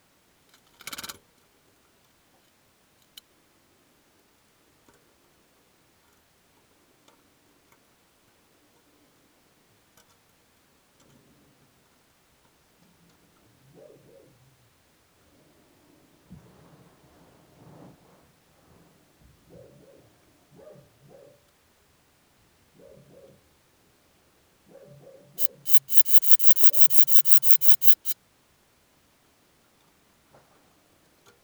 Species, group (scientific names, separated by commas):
Phaneroptera falcata, Orthoptera